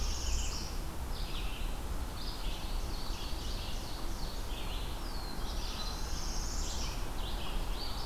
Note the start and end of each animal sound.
0.0s-0.7s: Northern Parula (Setophaga americana)
0.0s-8.1s: Red-eyed Vireo (Vireo olivaceus)
2.3s-4.6s: Ovenbird (Seiurus aurocapilla)
4.3s-6.5s: Black-throated Blue Warbler (Setophaga caerulescens)
5.4s-7.0s: Northern Parula (Setophaga americana)

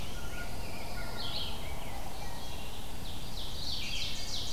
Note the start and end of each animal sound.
0.0s-4.2s: Red-eyed Vireo (Vireo olivaceus)
0.1s-1.4s: Blue Jay (Cyanocitta cristata)
0.1s-1.6s: Pine Warbler (Setophaga pinus)
1.9s-2.7s: Wood Thrush (Hylocichla mustelina)
2.7s-4.5s: Ovenbird (Seiurus aurocapilla)

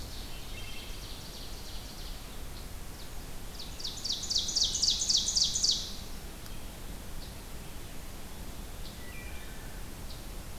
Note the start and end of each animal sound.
0.0s-2.1s: Ovenbird (Seiurus aurocapilla)
0.2s-0.9s: Wood Thrush (Hylocichla mustelina)
3.4s-6.0s: Ovenbird (Seiurus aurocapilla)
8.8s-9.8s: Wood Thrush (Hylocichla mustelina)

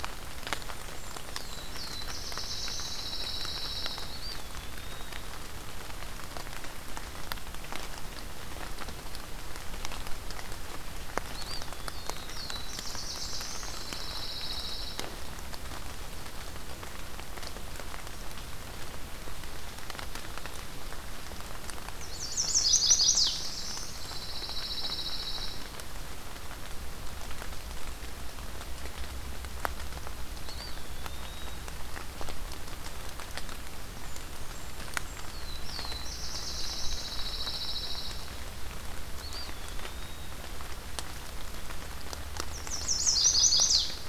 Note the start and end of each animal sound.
0.3s-1.6s: Blackburnian Warbler (Setophaga fusca)
1.1s-3.1s: Black-throated Blue Warbler (Setophaga caerulescens)
2.8s-4.1s: Pine Warbler (Setophaga pinus)
4.0s-5.1s: Eastern Wood-Pewee (Contopus virens)
11.2s-12.2s: Eastern Wood-Pewee (Contopus virens)
11.7s-13.7s: Black-throated Blue Warbler (Setophaga caerulescens)
12.6s-14.1s: Blackburnian Warbler (Setophaga fusca)
13.5s-15.1s: Pine Warbler (Setophaga pinus)
21.9s-23.3s: Chestnut-sided Warbler (Setophaga pensylvanica)
22.0s-23.1s: Eastern Wood-Pewee (Contopus virens)
22.6s-24.1s: Black-throated Blue Warbler (Setophaga caerulescens)
23.0s-24.4s: Blackburnian Warbler (Setophaga fusca)
23.8s-25.7s: Pine Warbler (Setophaga pinus)
30.3s-31.7s: Eastern Wood-Pewee (Contopus virens)
33.9s-35.4s: Blackburnian Warbler (Setophaga fusca)
35.0s-37.1s: Black-throated Blue Warbler (Setophaga caerulescens)
36.6s-38.3s: Pine Warbler (Setophaga pinus)
39.0s-40.4s: Eastern Wood-Pewee (Contopus virens)
42.5s-44.0s: Chestnut-sided Warbler (Setophaga pensylvanica)

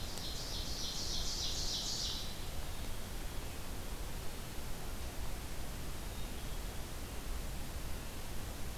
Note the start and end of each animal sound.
0.0s-2.3s: Ovenbird (Seiurus aurocapilla)
5.9s-6.8s: Black-capped Chickadee (Poecile atricapillus)

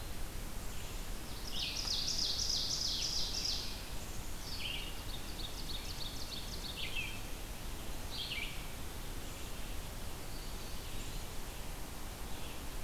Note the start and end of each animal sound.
0.0s-4.7s: Black-capped Chickadee (Poecile atricapillus)
0.0s-12.8s: Red-eyed Vireo (Vireo olivaceus)
1.1s-4.0s: Ovenbird (Seiurus aurocapilla)
4.5s-7.1s: Ovenbird (Seiurus aurocapilla)
9.1s-12.8s: Black-capped Chickadee (Poecile atricapillus)

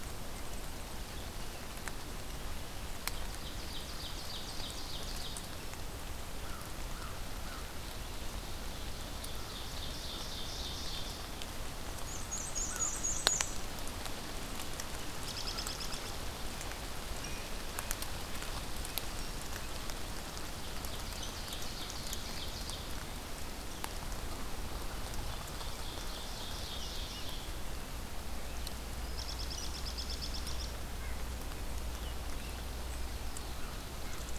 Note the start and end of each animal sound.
3.0s-5.7s: Ovenbird (Seiurus aurocapilla)
6.3s-7.7s: American Crow (Corvus brachyrhynchos)
8.4s-11.2s: Ovenbird (Seiurus aurocapilla)
12.1s-13.5s: Black-and-white Warbler (Mniotilta varia)
12.6s-13.0s: American Crow (Corvus brachyrhynchos)
15.1s-16.3s: American Robin (Turdus migratorius)
20.6s-23.2s: Ovenbird (Seiurus aurocapilla)
25.1s-27.6s: Ovenbird (Seiurus aurocapilla)
29.0s-30.8s: American Robin (Turdus migratorius)
30.9s-31.4s: Red-breasted Nuthatch (Sitta canadensis)

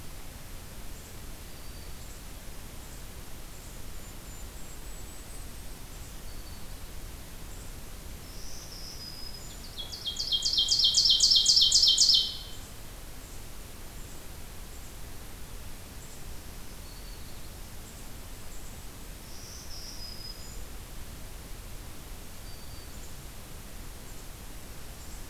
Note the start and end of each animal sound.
1.3s-2.2s: Black-throated Green Warbler (Setophaga virens)
3.8s-5.9s: Golden-crowned Kinglet (Regulus satrapa)
6.1s-6.8s: Black-throated Green Warbler (Setophaga virens)
8.1s-9.7s: Black-throated Green Warbler (Setophaga virens)
9.6s-12.8s: Ovenbird (Seiurus aurocapilla)
16.6s-17.5s: Black-throated Green Warbler (Setophaga virens)
19.2s-20.8s: Black-throated Green Warbler (Setophaga virens)
22.2s-23.0s: Black-throated Green Warbler (Setophaga virens)

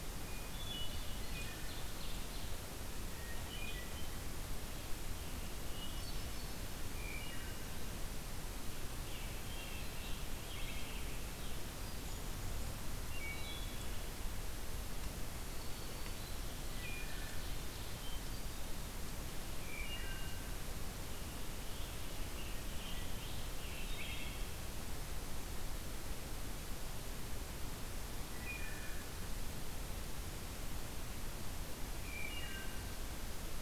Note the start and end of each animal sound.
0.2s-1.7s: Hermit Thrush (Catharus guttatus)
0.6s-2.6s: Ovenbird (Seiurus aurocapilla)
3.0s-4.3s: Hermit Thrush (Catharus guttatus)
5.5s-7.0s: Hermit Thrush (Catharus guttatus)
7.1s-7.8s: Wood Thrush (Hylocichla mustelina)
8.9s-11.5s: Scarlet Tanager (Piranga olivacea)
9.5s-10.0s: Wood Thrush (Hylocichla mustelina)
11.7s-12.7s: Hermit Thrush (Catharus guttatus)
13.1s-14.1s: Wood Thrush (Hylocichla mustelina)
15.3s-16.7s: Black-throated Green Warbler (Setophaga virens)
16.1s-18.2s: Ovenbird (Seiurus aurocapilla)
16.7s-17.5s: Wood Thrush (Hylocichla mustelina)
18.0s-18.8s: Hermit Thrush (Catharus guttatus)
19.6s-20.8s: Wood Thrush (Hylocichla mustelina)
21.1s-24.2s: Scarlet Tanager (Piranga olivacea)
23.7s-24.6s: Wood Thrush (Hylocichla mustelina)
28.2s-29.1s: Wood Thrush (Hylocichla mustelina)
32.0s-33.0s: Wood Thrush (Hylocichla mustelina)

